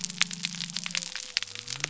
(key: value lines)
label: biophony
recorder: SoundTrap 300